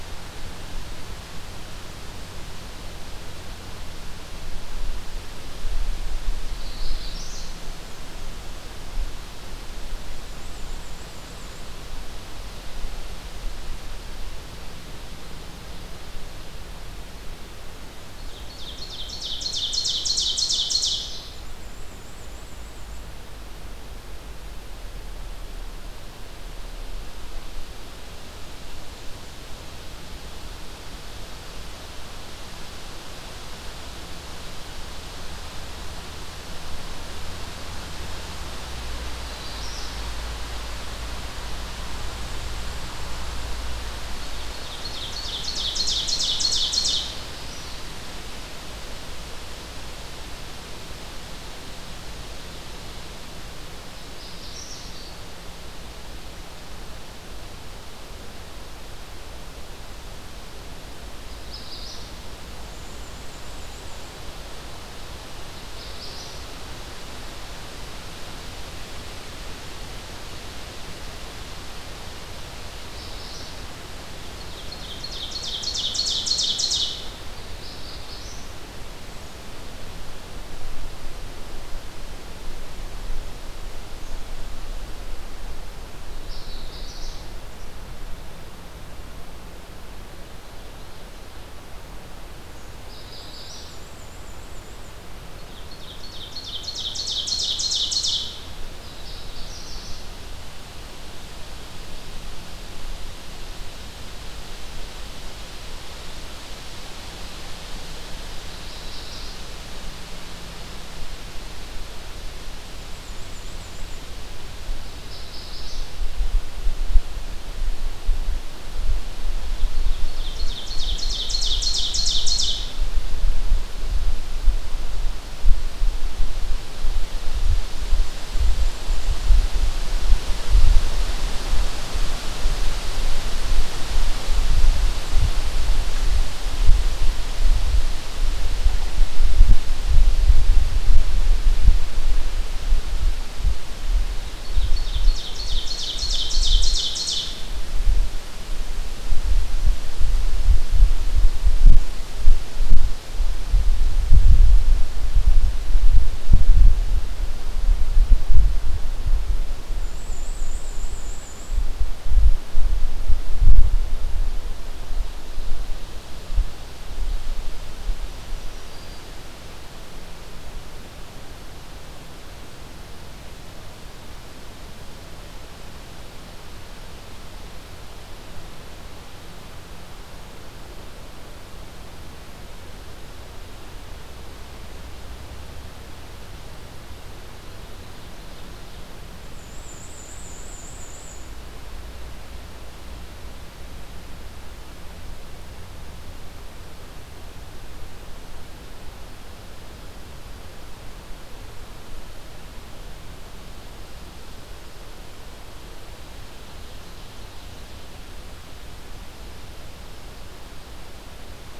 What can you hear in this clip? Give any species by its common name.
Magnolia Warbler, Black-and-white Warbler, Ovenbird, Black-throated Green Warbler